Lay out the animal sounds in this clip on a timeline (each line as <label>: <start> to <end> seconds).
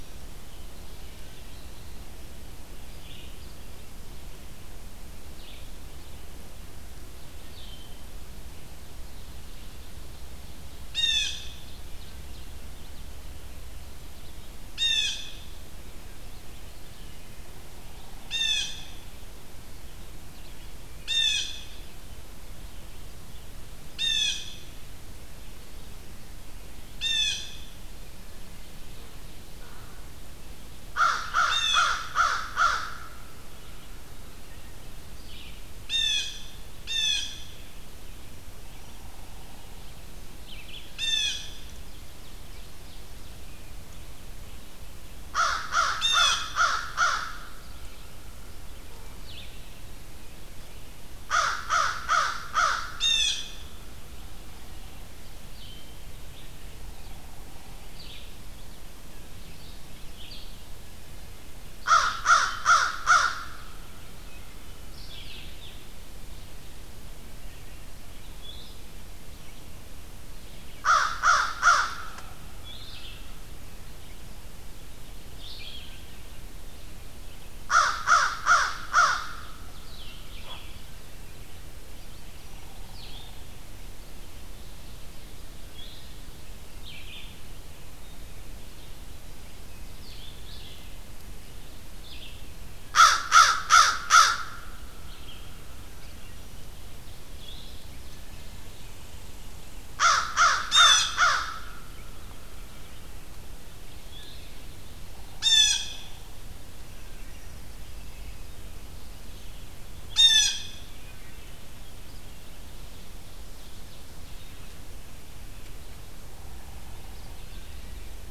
Red-eyed Vireo (Vireo olivaceus): 0.0 to 33.9 seconds
Blue Jay (Cyanocitta cristata): 10.7 to 19.1 seconds
Ovenbird (Seiurus aurocapilla): 11.2 to 13.2 seconds
Blue Jay (Cyanocitta cristata): 20.9 to 27.7 seconds
American Crow (Corvus brachyrhynchos): 29.6 to 30.0 seconds
American Crow (Corvus brachyrhynchos): 30.8 to 33.2 seconds
Blue Jay (Cyanocitta cristata): 31.3 to 32.2 seconds
Red-eyed Vireo (Vireo olivaceus): 35.0 to 92.5 seconds
Blue Jay (Cyanocitta cristata): 35.7 to 37.7 seconds
Northern Flicker (Colaptes auratus): 38.7 to 39.9 seconds
Blue Jay (Cyanocitta cristata): 40.8 to 41.6 seconds
Ovenbird (Seiurus aurocapilla): 41.5 to 43.6 seconds
American Crow (Corvus brachyrhynchos): 45.0 to 47.7 seconds
Blue Jay (Cyanocitta cristata): 45.9 to 46.5 seconds
American Crow (Corvus brachyrhynchos): 51.0 to 53.3 seconds
Blue Jay (Cyanocitta cristata): 52.8 to 53.7 seconds
American Crow (Corvus brachyrhynchos): 61.5 to 63.4 seconds
Blue-headed Vireo (Vireo solitarius): 65.0 to 90.4 seconds
American Crow (Corvus brachyrhynchos): 70.6 to 73.2 seconds
American Crow (Corvus brachyrhynchos): 77.3 to 79.8 seconds
American Crow (Corvus brachyrhynchos): 92.7 to 94.5 seconds
Red-eyed Vireo (Vireo olivaceus): 95.0 to 104.6 seconds
Ovenbird (Seiurus aurocapilla): 96.9 to 99.3 seconds
American Crow (Corvus brachyrhynchos): 99.9 to 102.2 seconds
Blue Jay (Cyanocitta cristata): 100.5 to 101.3 seconds
Blue Jay (Cyanocitta cristata): 105.0 to 106.1 seconds
Blue Jay (Cyanocitta cristata): 110.0 to 110.9 seconds
Ovenbird (Seiurus aurocapilla): 112.7 to 114.5 seconds